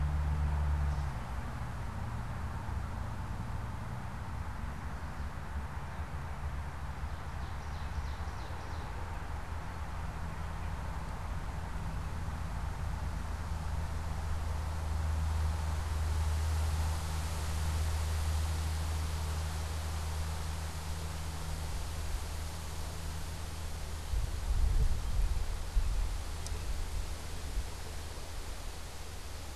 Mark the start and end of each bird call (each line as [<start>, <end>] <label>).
[6.77, 9.07] Ovenbird (Seiurus aurocapilla)